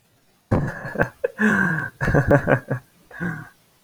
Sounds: Laughter